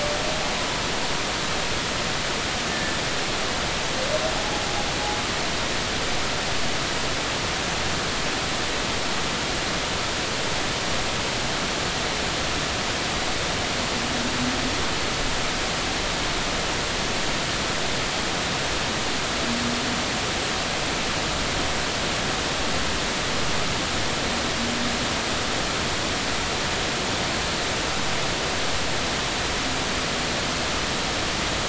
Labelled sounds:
2.7	3.0	humpback whale, 1.7 to 1.8 kHz
4.4	4.6	humpback whale, 0.80 to 0.90 kHz

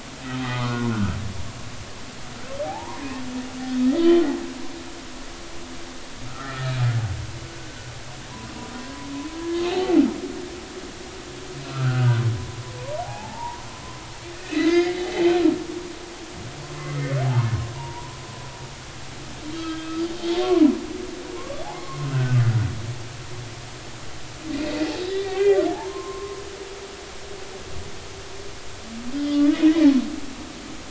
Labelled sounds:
0.4	1.2	humpback whale, 1.0 to 2.1 kHz
2.6	3.0	humpback whale, 0.80 to 1.1 kHz
6.3	6.8	humpback whale, 1.2 to 2.0 kHz
8.8	10.0	humpback whale, 0.80 to 1.8 kHz
11.6	12.2	humpback whale, 1.2 to 1.6 kHz
12.8	13.6	humpback whale, 0.80 to 1.1 kHz
14.3	15.0	humpback whale, 1.6 to 2.8 kHz
16.9	18.2	humpback whale, 0.80 to 2.0 kHz
19.5	20.1	humpback whale, 1.2 to 4.6 kHz
21.3	22.4	humpback whale, 0.90 to 1.6 kHz
25.1	26.4	humpback whale, 0.80 to 2.8 kHz
29.2	29.6	humpback whale, 1.1 to 3.6 kHz

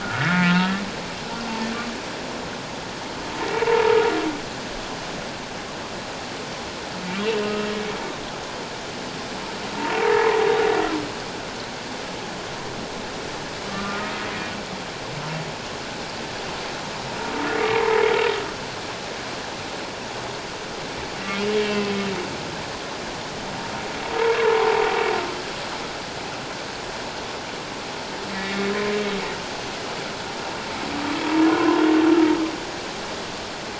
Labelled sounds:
0.0	0.8	humpback whale, 1.2 to 1.8 kHz
3.6	4.0	humpback whale, 0.84 to 1.0 kHz
7.4	7.7	humpback whale, 1.2 to 1.3 kHz
13.7	14.3	humpback whale, 1.1 to 1.3 kHz
17.7	18.0	humpback whale, 0.84 to 1.1 kHz
21.6	21.9	humpback whale, 2.6 to 2.8 kHz
24.4	24.8	humpback whale, 0.78 to 1.2 kHz
28.4	28.7	humpback whale, 2.1 to 2.2 kHz

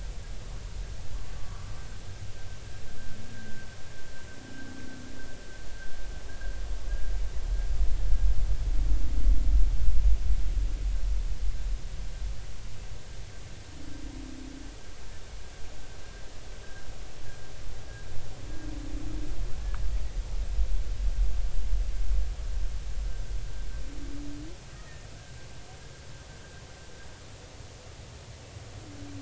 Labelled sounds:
1.4	1.7	humpback whale, 0.93 to 1.2 kHz
3.3	3.8	humpback whale, 1.5 to 1.7 kHz
24.7	25.1	humpback whale, 1.8 to 1.9 kHz

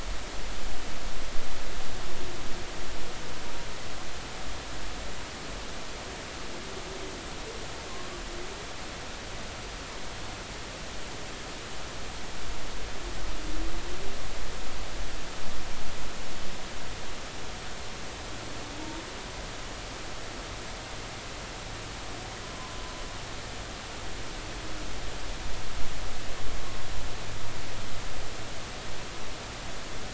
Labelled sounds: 22.4	22.7	humpback whale, 0.90 to 1.1 kHz

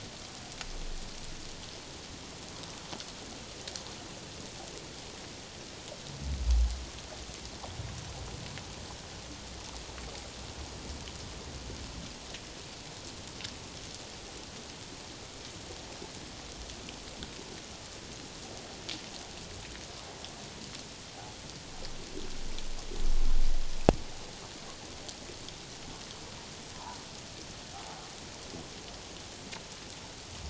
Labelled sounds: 26.7	27.0	humpback whale, 0.78 to 1.1 kHz

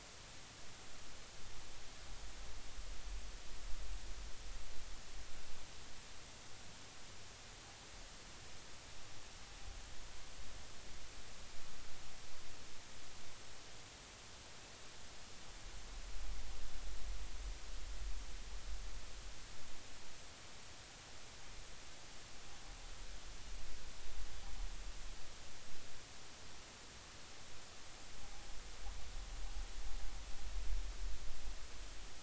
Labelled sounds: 28.2	28.5	vessel noise, 0.80 to 0.86 kHz

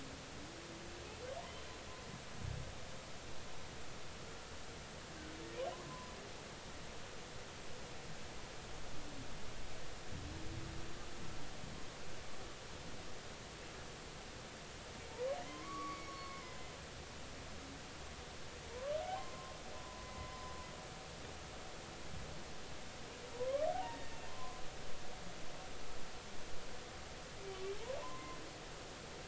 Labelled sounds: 5.7	6.1	humpback whale, 0.96 to 1.1 kHz
15.5	16.7	humpback whale, 0.96 to 4.5 kHz
18.7	20.3	humpback whale, 0.90 to 1.2 kHz
21.3	21.5	humpback whale, 5.0 to 5.2 kHz
23.3	24.3	humpback whale, 0.80 to 2.8 kHz
25.3	25.6	humpback whale, 0.96 to 1.2 kHz
28.0	28.4	humpback whale, 0.86 to 1.1 kHz

